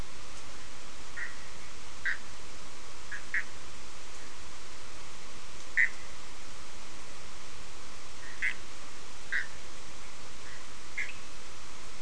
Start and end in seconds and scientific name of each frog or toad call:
1.1	2.2	Boana bischoffi
3.1	3.5	Boana bischoffi
5.7	5.9	Boana bischoffi
8.4	9.5	Boana bischoffi
10.9	11.1	Boana bischoffi